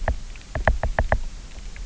{"label": "biophony, knock", "recorder": "SoundTrap 300"}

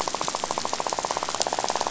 {"label": "biophony, rattle", "recorder": "SoundTrap 500"}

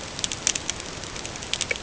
{"label": "ambient", "recorder": "HydroMoth"}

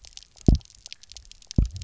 {"label": "biophony, double pulse", "recorder": "SoundTrap 300"}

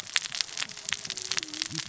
{"label": "biophony, cascading saw", "recorder": "SoundTrap 600 or HydroMoth"}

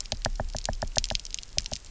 {"label": "biophony, knock", "recorder": "SoundTrap 300"}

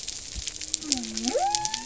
{"label": "biophony", "recorder": "SoundTrap 300"}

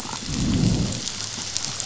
{"label": "biophony, growl", "recorder": "SoundTrap 500"}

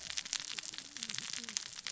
{"label": "biophony, cascading saw", "recorder": "SoundTrap 600 or HydroMoth"}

